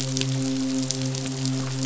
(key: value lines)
label: biophony, midshipman
recorder: SoundTrap 500